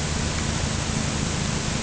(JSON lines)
{"label": "anthrophony, boat engine", "recorder": "HydroMoth"}